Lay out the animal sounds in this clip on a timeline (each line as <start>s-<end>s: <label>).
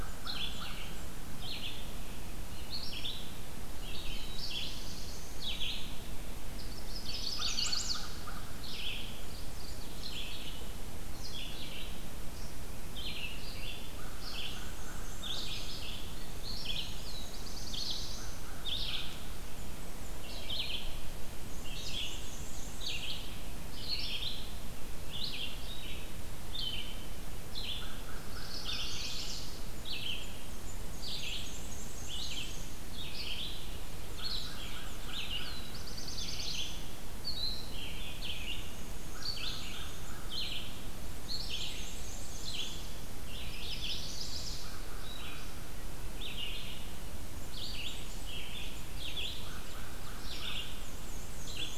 0.0s-1.0s: American Crow (Corvus brachyrhynchos)
0.0s-51.8s: Red-eyed Vireo (Vireo olivaceus)
3.7s-5.6s: Black-throated Blue Warbler (Setophaga caerulescens)
6.3s-8.1s: Chestnut-sided Warbler (Setophaga pensylvanica)
7.0s-9.2s: American Crow (Corvus brachyrhynchos)
9.1s-10.1s: Mourning Warbler (Geothlypis philadelphia)
13.8s-19.1s: American Crow (Corvus brachyrhynchos)
14.1s-17.7s: Black-and-white Warbler (Mniotilta varia)
16.7s-18.6s: Black-throated Blue Warbler (Setophaga caerulescens)
21.2s-23.3s: Black-and-white Warbler (Mniotilta varia)
27.5s-29.4s: American Crow (Corvus brachyrhynchos)
28.2s-29.6s: Chestnut-sided Warbler (Setophaga pensylvanica)
30.0s-33.1s: Black-and-white Warbler (Mniotilta varia)
33.6s-35.3s: Black-and-white Warbler (Mniotilta varia)
33.8s-36.5s: American Crow (Corvus brachyrhynchos)
35.2s-37.1s: Black-throated Blue Warbler (Setophaga caerulescens)
38.1s-40.1s: Black-and-white Warbler (Mniotilta varia)
38.9s-41.1s: American Crow (Corvus brachyrhynchos)
41.1s-42.9s: Black-and-white Warbler (Mniotilta varia)
43.2s-44.8s: Chestnut-sided Warbler (Setophaga pensylvanica)
44.2s-46.1s: American Crow (Corvus brachyrhynchos)
47.2s-48.3s: Black-and-white Warbler (Mniotilta varia)
49.0s-51.8s: Black-and-white Warbler (Mniotilta varia)
49.1s-51.0s: American Crow (Corvus brachyrhynchos)